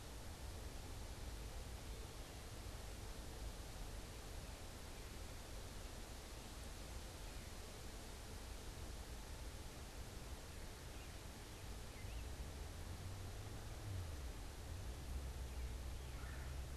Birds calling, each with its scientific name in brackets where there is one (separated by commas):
Red-bellied Woodpecker (Melanerpes carolinus), American Robin (Turdus migratorius)